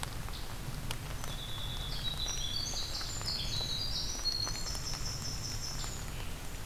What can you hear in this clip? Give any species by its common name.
Scarlet Tanager, Winter Wren